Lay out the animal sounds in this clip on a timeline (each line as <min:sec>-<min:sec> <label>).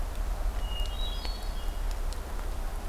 0:00.5-0:01.9 Hermit Thrush (Catharus guttatus)